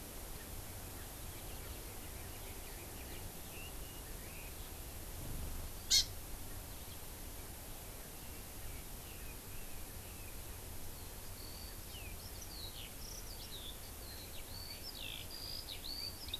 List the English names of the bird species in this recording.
Hawaii Amakihi, Red-billed Leiothrix, Eurasian Skylark